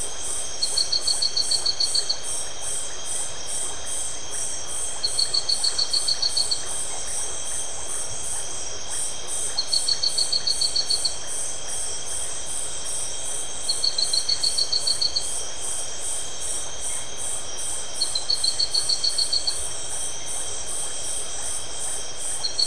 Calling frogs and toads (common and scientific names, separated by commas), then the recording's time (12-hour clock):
Iporanga white-lipped frog (Leptodactylus notoaktites)
9:30pm